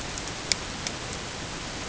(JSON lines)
{"label": "ambient", "recorder": "HydroMoth"}